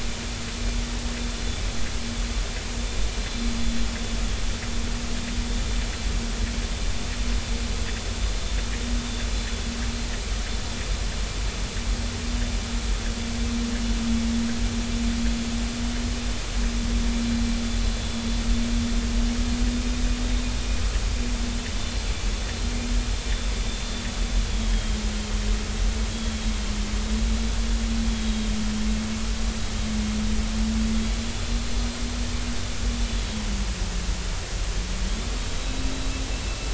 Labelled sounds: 24.5	25.0	vessel noise, 3.1 to 3.4 kHz
26.1	26.4	vessel noise, 3.2 to 3.4 kHz

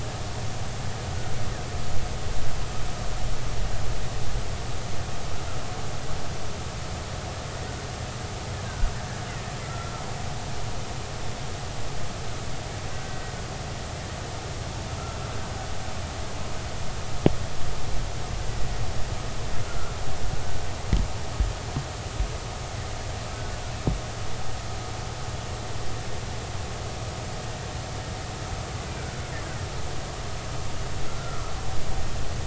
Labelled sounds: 9.6	9.9	killer whale, Bigg's (transient), 1.3 to 1.4 kHz
12.9	13.2	killer whale, Bigg's (transient), 1.5 to 1.6 kHz
19.7	20.0	killer whale, Bigg's (transient), 1.3 to 1.5 kHz
31.0	31.5	killer whale, Bigg's (transient), 1.1 to 1.5 kHz

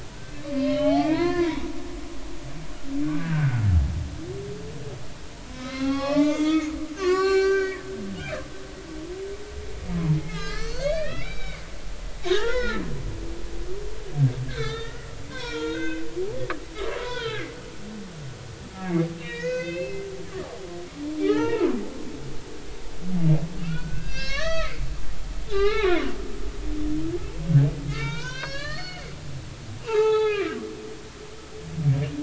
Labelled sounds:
0.5	1.7	humpback whale, 0.80 to 4.4 kHz
3.0	3.7	humpback whale, 1.3 to 1.8 kHz
5.5	7.9	humpback whale, 0.80 to 7.0 kHz
10.2	11.6	humpback whale, 1.2 to 5.6 kHz
12.2	12.8	humpback whale, 0.83 to 5.8 kHz
13.5	16.1	humpback whale, 0.90 to 4.7 kHz
17.0	17.5	humpback whale, 0.93 to 5.1 kHz
19.2	20.5	humpback whale, 1.1 to 6.2 kHz
21.3	21.8	humpback whale, 0.80 to 2.9 kHz
23.6	24.8	humpback whale, 1.0 to 6.6 kHz
25.5	26.0	humpback whale, 0.80 to 3.0 kHz
26.5	29.0	humpback whale, 0.86 to 6.2 kHz
29.8	30.5	humpback whale, 0.80 to 4.0 kHz

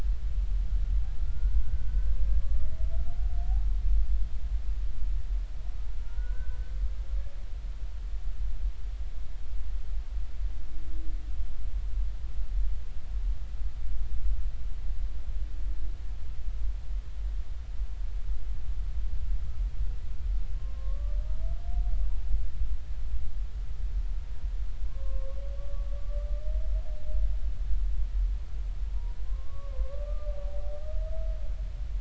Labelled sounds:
1.2	2.2	humpback whale, 1.3 to 1.6 kHz
6.1	6.6	humpback whale, 1.3 to 1.6 kHz
20.6	21.2	humpback whale, 0.99 to 1.2 kHz
24.9	25.9	humpback whale, 0.99 to 1.2 kHz
28.9	30.3	humpback whale, 0.90 to 1.2 kHz

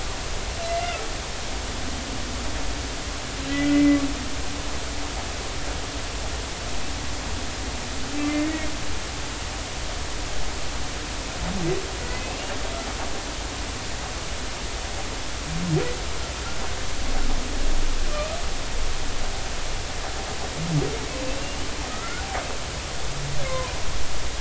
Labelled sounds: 0.7	1.0	humpback whale, 2.0 to 2.2 kHz
3.5	4.0	humpback whale, 1.9 to 2.1 kHz
8.2	8.7	humpback whale, 1.8 to 2.3 kHz
12.0	12.3	humpback whale, 1.9 to 2.1 kHz
21.3	21.6	humpback whale, 2.6 to 2.8 kHz
21.9	22.2	humpback whale, 1.2 to 2.2 kHz
23.5	23.7	humpback whale, 0.93 to 1.1 kHz

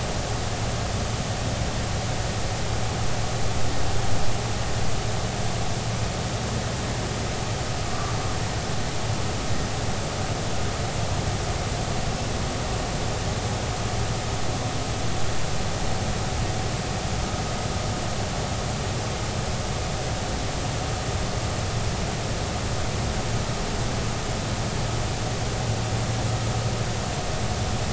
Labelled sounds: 7.8	8.1	humpback whale, 1.1 to 1.2 kHz

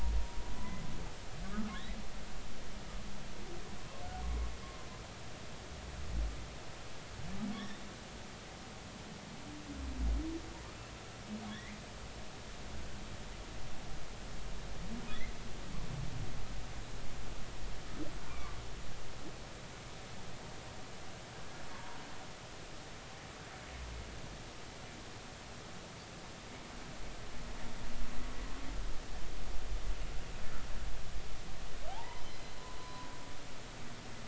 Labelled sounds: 0.6	0.8	humpback whale, 0.96 to 1.1 kHz
1.4	1.7	humpback whale, 1.1 to 1.4 kHz
3.8	4.0	humpback whale, 0.99 to 1.1 kHz
7.5	7.8	humpback whale, 3.1 to 3.8 kHz
11.5	11.8	humpback whale, 1.6 to 2.2 kHz
18.3	18.6	humpback whale, 0.99 to 1.2 kHz
21.7	22.0	humpback whale, 0.90 to 1.2 kHz
31.9	33.1	humpback whale, 0.80 to 4.1 kHz

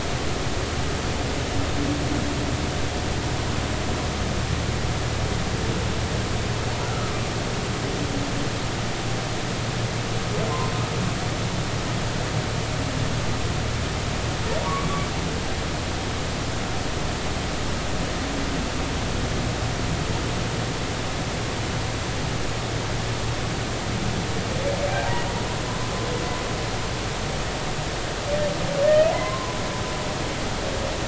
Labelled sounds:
6.9	7.1	humpback whale, 1.2 to 1.5 kHz
14.7	14.9	humpback whale, 2.1 to 2.3 kHz
28.8	29.6	humpback whale, 0.96 to 2.0 kHz

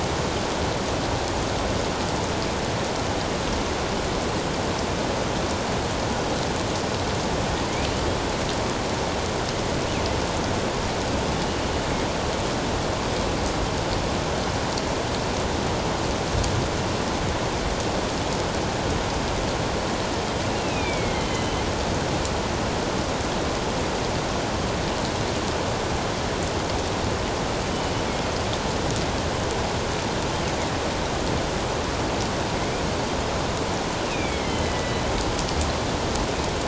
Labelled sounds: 20.5	21.6	killer whale, northern resident, A clan, AA subclan, A04 pod, 2.0 to 3.9 kHz
34.1	35.0	killer whale, northern resident, A clan, AA subclan, A04 pod, 1.9 to 3.5 kHz

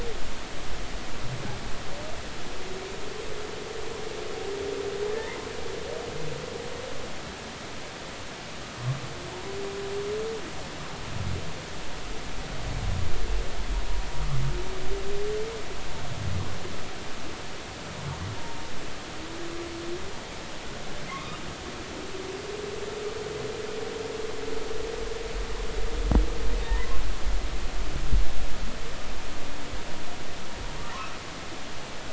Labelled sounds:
5.1	5.5	humpback whale, 0.83 to 2.1 kHz
21.1	21.4	humpback whale, 0.99 to 1.3 kHz
26.7	27.0	humpback whale, 0.86 to 1.1 kHz

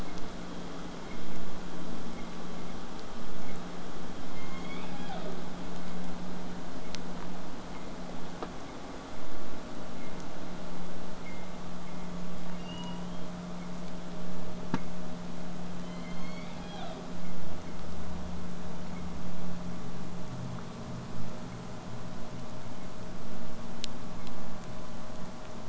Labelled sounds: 4.3	5.5	killer whale, southern resident, J pod, call S01, 0.25 to 7.3 kHz
12.5	13.3	killer whale, southern resident, J pod, 0.75 to 6.1 kHz
15.8	17.1	killer whale, southern resident, J pod, call S01, 0.42 to 6.9 kHz

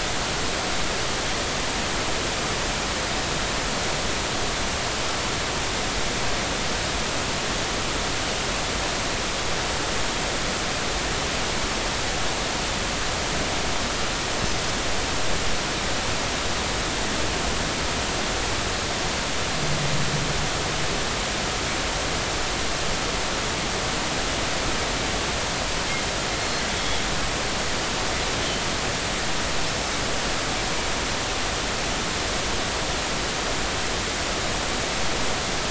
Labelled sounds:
26.4	26.6	Pacific white-sided dolphin, 4.2 to 4.3 kHz

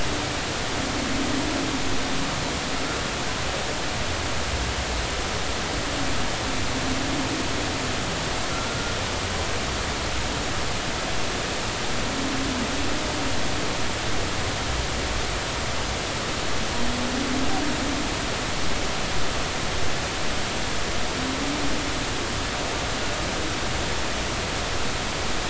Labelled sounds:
8.5	8.8	humpback whale, 1.3 to 1.4 kHz

